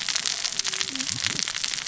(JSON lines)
{"label": "biophony, cascading saw", "recorder": "SoundTrap 600 or HydroMoth"}